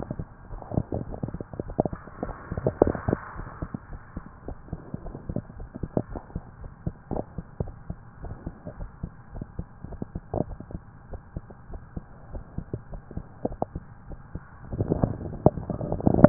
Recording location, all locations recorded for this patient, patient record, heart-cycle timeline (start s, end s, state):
pulmonary valve (PV)
aortic valve (AV)+pulmonary valve (PV)+tricuspid valve (TV)+mitral valve (MV)
#Age: Child
#Sex: Male
#Height: 153.0 cm
#Weight: 79.9 kg
#Pregnancy status: False
#Murmur: Absent
#Murmur locations: nan
#Most audible location: nan
#Systolic murmur timing: nan
#Systolic murmur shape: nan
#Systolic murmur grading: nan
#Systolic murmur pitch: nan
#Systolic murmur quality: nan
#Diastolic murmur timing: nan
#Diastolic murmur shape: nan
#Diastolic murmur grading: nan
#Diastolic murmur pitch: nan
#Diastolic murmur quality: nan
#Outcome: Abnormal
#Campaign: 2015 screening campaign
0.00	8.77	unannotated
8.77	8.90	S1
8.90	9.01	systole
9.01	9.12	S2
9.12	9.36	diastole
9.36	9.46	S1
9.46	9.56	systole
9.56	9.68	S2
9.68	9.87	diastole
9.87	9.99	S1
9.99	10.13	systole
10.13	10.22	S2
10.22	10.46	diastole
10.46	10.57	S1
10.57	10.70	systole
10.70	10.80	S2
10.80	11.09	diastole
11.09	11.22	S1
11.22	11.35	systole
11.35	11.44	S2
11.44	11.68	diastole
11.68	11.82	S1
11.82	11.93	systole
11.93	12.04	S2
12.04	12.31	diastole
12.31	12.44	S1
12.44	12.55	systole
12.55	12.66	S2
12.66	12.91	diastole
12.91	13.01	S1
13.01	16.29	unannotated